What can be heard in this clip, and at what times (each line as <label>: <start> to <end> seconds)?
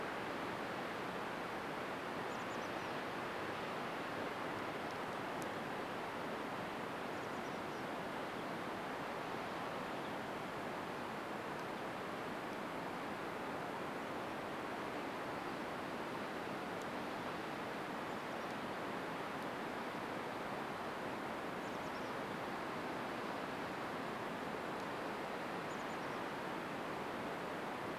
Chestnut-backed Chickadee call: 2 to 4 seconds
Chestnut-backed Chickadee call: 6 to 8 seconds
Golden-crowned Kinglet song: 8 to 12 seconds
Chestnut-backed Chickadee call: 18 to 28 seconds